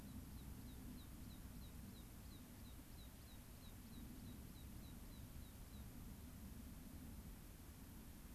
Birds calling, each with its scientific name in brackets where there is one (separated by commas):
American Pipit (Anthus rubescens)